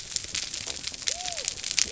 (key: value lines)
label: biophony
recorder: SoundTrap 300